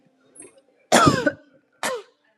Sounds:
Cough